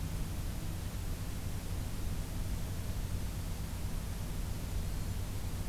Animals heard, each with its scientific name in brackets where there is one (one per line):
Blackburnian Warbler (Setophaga fusca)